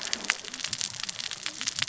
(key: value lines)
label: biophony, cascading saw
recorder: SoundTrap 600 or HydroMoth